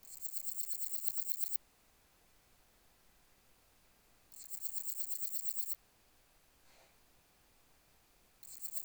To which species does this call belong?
Parnassiana chelmos